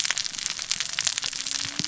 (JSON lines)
{"label": "biophony, cascading saw", "recorder": "SoundTrap 600 or HydroMoth"}